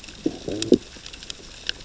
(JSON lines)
{"label": "biophony, growl", "recorder": "SoundTrap 600 or HydroMoth"}